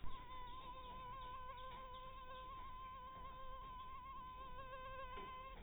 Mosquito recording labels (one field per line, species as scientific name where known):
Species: mosquito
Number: one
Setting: cup